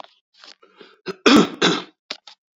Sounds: Cough